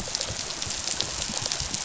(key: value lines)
label: biophony, dolphin
recorder: SoundTrap 500

label: biophony, rattle response
recorder: SoundTrap 500